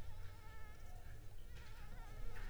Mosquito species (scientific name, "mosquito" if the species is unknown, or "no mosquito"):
Anopheles arabiensis